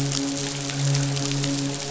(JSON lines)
{"label": "biophony, midshipman", "recorder": "SoundTrap 500"}